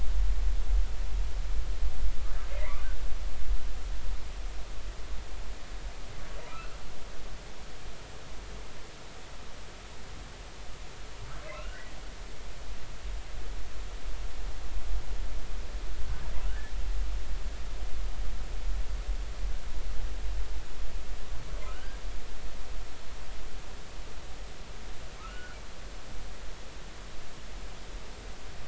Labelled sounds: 2.5	2.9	humpback whale, 1.9 to 2.5 kHz
6.5	6.8	humpback whale, 1.2 to 1.5 kHz
11.5	11.9	humpback whale, 1.2 to 2.9 kHz
16.5	16.7	humpback whale, 1.4 to 1.8 kHz
21.7	22.0	humpback whale, 1.2 to 1.7 kHz
25.2	25.6	humpback whale, 1.0 to 1.5 kHz

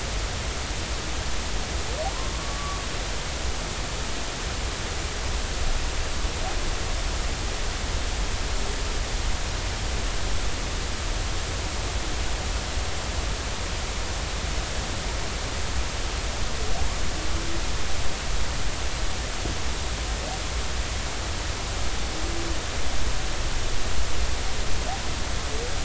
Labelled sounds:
2.3	2.8	humpback whale, 1.1 to 1.2 kHz

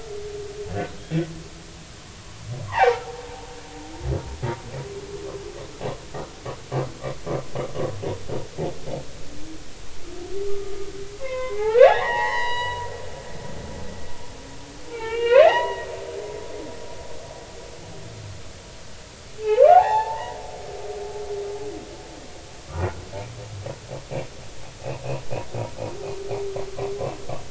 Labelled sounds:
2.7	3.1	humpback whale, 0.80 to 2.1 kHz
10.5	12.9	humpback whale, 0.80 to 5.1 kHz
14.9	15.9	humpback whale, 0.80 to 3.4 kHz
19.4	20.4	humpback whale, 0.80 to 3.7 kHz
22.7	23.0	humpback whale, 1.1 to 1.5 kHz

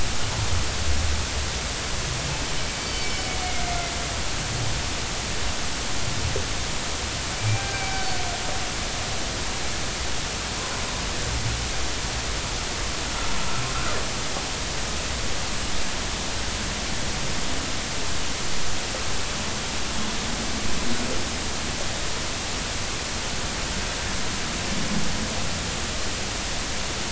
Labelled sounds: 2.8	3.5	humpback whale, 2.9 to 4.6 kHz
7.4	8.0	humpback whale, 1.5 to 2.4 kHz

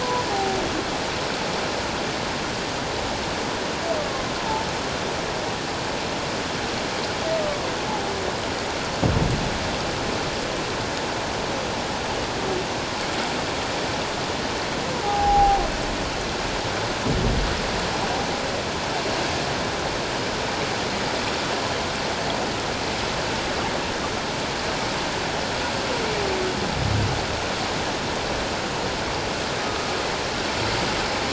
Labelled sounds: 0.0	0.6	humpback whale, 0.78 to 1.1 kHz
7.4	7.7	humpback whale, 1.1 to 1.2 kHz
15.0	15.6	humpback whale, 0.78 to 0.88 kHz
29.6	29.9	humpback whale, 1.2 to 1.3 kHz

